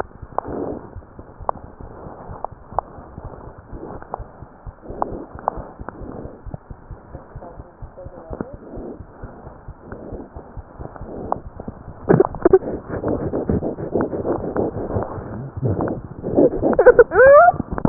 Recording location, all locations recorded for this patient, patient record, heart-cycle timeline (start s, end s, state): pulmonary valve (PV)
aortic valve (AV)+pulmonary valve (PV)+tricuspid valve (TV)+mitral valve (MV)
#Age: Infant
#Sex: Male
#Height: 72.0 cm
#Weight: 8.3 kg
#Pregnancy status: False
#Murmur: Absent
#Murmur locations: nan
#Most audible location: nan
#Systolic murmur timing: nan
#Systolic murmur shape: nan
#Systolic murmur grading: nan
#Systolic murmur pitch: nan
#Systolic murmur quality: nan
#Diastolic murmur timing: nan
#Diastolic murmur shape: nan
#Diastolic murmur grading: nan
#Diastolic murmur pitch: nan
#Diastolic murmur quality: nan
#Outcome: Abnormal
#Campaign: 2015 screening campaign
0.00	6.60	unannotated
6.60	6.67	diastole
6.67	6.75	S1
6.75	6.90	systole
6.90	6.95	S2
6.95	7.12	diastole
7.12	7.19	S1
7.19	7.34	systole
7.34	7.41	S2
7.41	7.58	diastole
7.58	7.63	S1
7.63	7.80	systole
7.80	7.88	S2
7.88	8.04	diastole
8.04	8.11	S1
8.11	8.30	systole
8.30	8.37	S2
8.37	8.51	diastole
8.51	8.59	S1
8.59	8.75	systole
8.75	8.82	S2
8.82	8.99	diastole
8.99	9.03	S1
9.03	9.22	systole
9.22	9.29	S2
9.29	9.46	diastole
9.46	9.52	S1
9.52	9.67	systole
9.67	9.73	S2
9.73	9.90	diastole
9.90	10.00	S1
10.00	10.11	systole
10.11	10.18	S2
10.18	10.34	diastole
10.34	10.42	S1
10.42	10.55	systole
10.55	10.61	S2
10.61	10.78	diastole
10.78	10.86	S1
10.86	17.89	unannotated